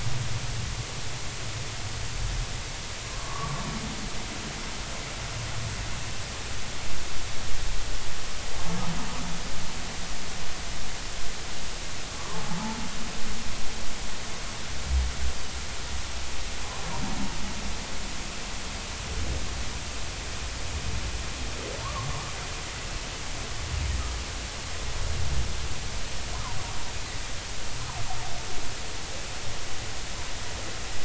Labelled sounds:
3.1	3.6	humpback whale, 0.99 to 1.2 kHz
12.2	12.4	humpback whale, 0.83 to 1.2 kHz
21.8	22.1	humpback whale, 0.86 to 1.2 kHz

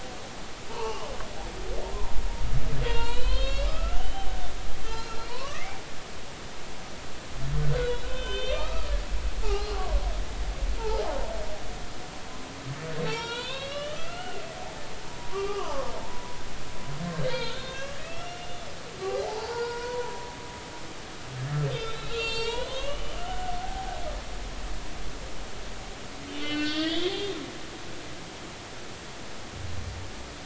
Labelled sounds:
0.7	1.1	humpback whale, 0.80 to 3.0 kHz
2.8	4.4	humpback whale, 0.86 to 4.6 kHz
5.2	5.8	humpback whale, 0.93 to 4.5 kHz
7.6	8.9	humpback whale, 1.4 to 6.1 kHz
9.4	9.9	humpback whale, 0.80 to 1.4 kHz
10.8	11.1	humpback whale, 0.80 to 0.96 kHz
13.0	14.4	humpback whale, 0.83 to 5.7 kHz
15.1	18.7	humpback whale, 0.83 to 4.3 kHz
19.0	20.3	humpback whale, 0.80 to 4.8 kHz
21.7	24.0	humpback whale, 0.80 to 7.4 kHz
26.3	27.3	humpback whale, 1.4 to 5.5 kHz

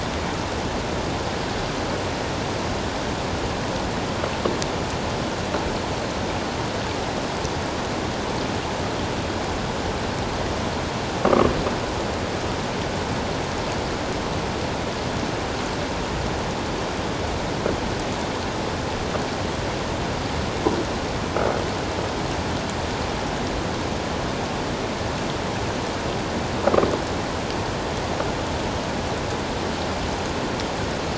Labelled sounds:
11.2	11.5	croaking sound likely from a nearby submerged object, 1.0 to 1.3 kHz

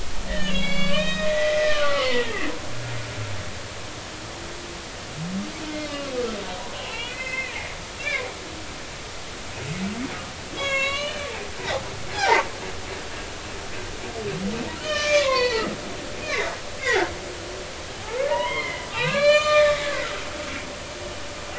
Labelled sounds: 0.3	2.4	humpback whale, 0.93 to 6.3 kHz
6.6	7.7	humpback whale, 0.90 to 3.0 kHz
10.6	11.3	humpback whale, 0.96 to 6.7 kHz
11.6	12.4	humpback whale, 0.80 to 1.0 kHz
14.8	15.8	humpback whale, 0.86 to 5.4 kHz
16.2	16.5	humpback whale, 2.0 to 2.5 kHz
16.8	17.1	humpback whale, 0.80 to 2.2 kHz
18.3	20.1	humpback whale, 0.80 to 7.3 kHz

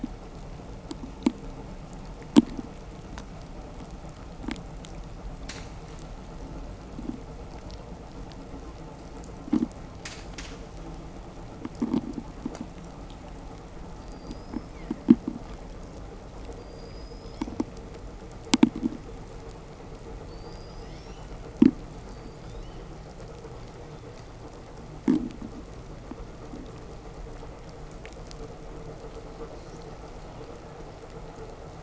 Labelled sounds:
13.8	15.0	killer whale, southern resident, 4.1 to 5.6 kHz
16.5	17.6	killer whale, southern resident, 4.1 to 8.0 kHz
20.2	21.3	killer whale, southern resident, 1.2 to 8.0 kHz
21.9	23.1	killer whale, southern resident, 1.7 to 7.9 kHz

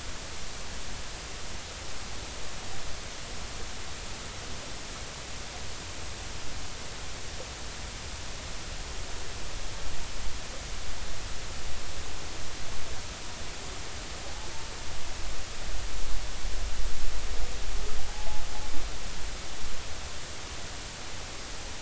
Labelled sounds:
18.1	18.4	humpback whale, 0.80 to 0.93 kHz

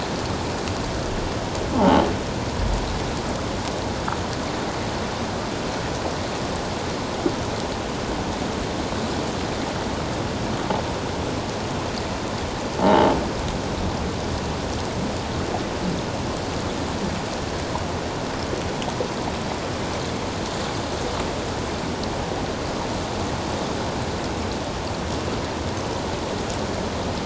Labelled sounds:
12.8	13.1	croaking sound likely from a nearby submerged object, 0.78 to 0.97 kHz

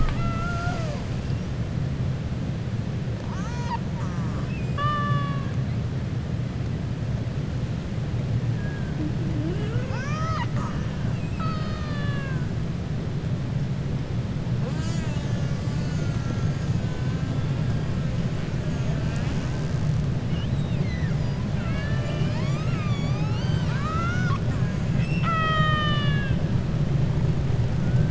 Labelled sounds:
3.9	5.5	killer whale, 0.56 to 5.3 kHz
11.0	12.4	killer whale, 0.60 to 5.1 kHz
20.2	21.1	killer whale, 1.7 to 4.2 kHz
24.9	26.4	killer whale, 0.65 to 6.3 kHz

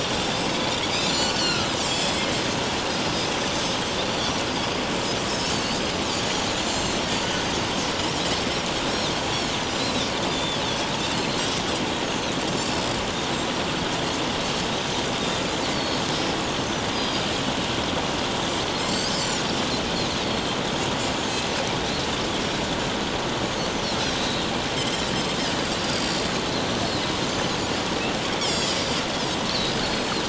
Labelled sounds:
0.9	2.3	Pacific white-sided dolphin, 1.3 to 7.8 kHz
3.6	4.4	Pacific white-sided dolphin, 4.3 to 8.0 kHz
5.3	5.8	Pacific white-sided dolphin, 4.0 to 6.9 kHz
6.7	7.0	Pacific white-sided dolphin, 4.1 to 7.4 kHz
7.3	7.6	Pacific white-sided dolphin, 6.2 to 6.3 kHz
8.4	11.4	Pacific white-sided dolphin, 3.2 to 6.7 kHz
12.0	13.0	Pacific white-sided dolphin, 4.9 to 6.7 kHz
15.7	16.0	Pacific white-sided dolphin, 4.3 to 4.8 kHz
16.6	17.2	Pacific white-sided dolphin, 4.8 to 6.4 kHz
18.7	19.4	Pacific white-sided dolphin, 4.1 to 7.7 kHz
20.2	20.6	Pacific white-sided dolphin, 4.1 to 4.7 kHz
24.2	24.5	Pacific white-sided dolphin, 3.6 to 4.1 kHz
25.8	26.2	Pacific white-sided dolphin, 4.5 to 7.7 kHz
27.3	27.5	Pacific white-sided dolphin, 5.9 to 6.2 kHz
28.4	30.1	Pacific white-sided dolphin, 3.8 to 5.8 kHz

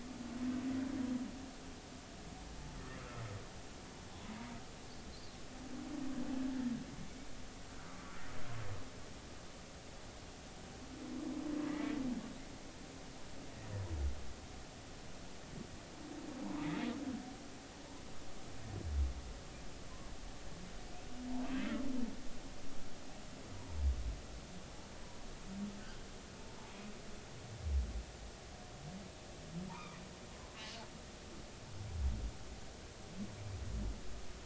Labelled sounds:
3.0	3.2	humpback whale, 1.2 to 1.4 kHz
4.3	4.6	humpback whale, 0.90 to 0.99 kHz
7.9	8.1	humpback whale, 1.1 to 1.3 kHz
11.7	12.0	humpback whale, 1.9 to 2.3 kHz
26.4	26.7	humpback whale, 0.83 to 1.0 kHz
29.7	30.0	humpback whale, 0.83 to 1.4 kHz

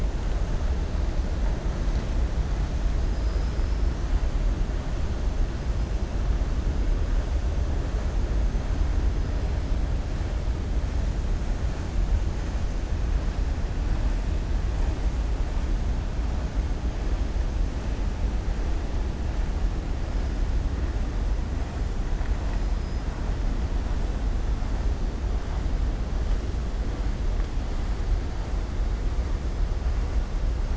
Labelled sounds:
3.0	3.8	killer whale, southern resident, 4.1 to 5.5 kHz

